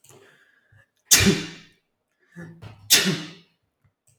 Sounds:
Sneeze